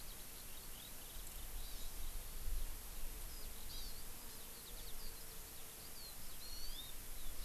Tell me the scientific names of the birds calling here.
Alauda arvensis, Chlorodrepanis virens